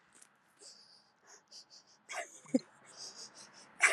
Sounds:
Sniff